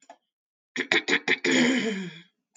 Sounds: Throat clearing